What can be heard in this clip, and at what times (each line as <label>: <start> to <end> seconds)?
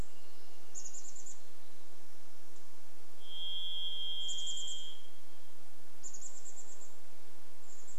Chestnut-backed Chickadee call: 0 to 2 seconds
Varied Thrush song: 0 to 6 seconds
insect buzz: 0 to 8 seconds
unidentified bird chip note: 2 to 4 seconds
Chestnut-backed Chickadee call: 4 to 8 seconds